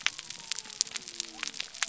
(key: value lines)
label: biophony
recorder: SoundTrap 300